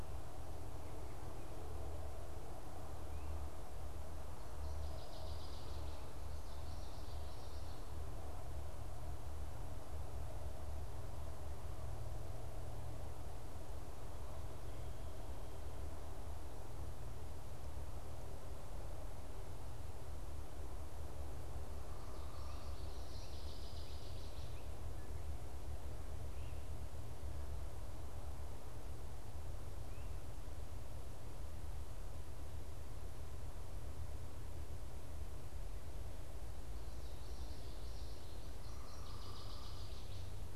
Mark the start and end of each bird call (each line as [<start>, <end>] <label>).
[4.40, 6.00] Northern Waterthrush (Parkesia noveboracensis)
[6.40, 8.10] Common Yellowthroat (Geothlypis trichas)
[22.80, 24.70] Northern Waterthrush (Parkesia noveboracensis)
[36.70, 38.60] Common Yellowthroat (Geothlypis trichas)
[38.40, 40.50] Northern Waterthrush (Parkesia noveboracensis)
[38.50, 40.10] unidentified bird